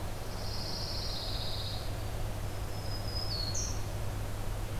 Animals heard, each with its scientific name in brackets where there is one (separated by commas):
Black-throated Green Warbler (Setophaga virens), Pine Warbler (Setophaga pinus)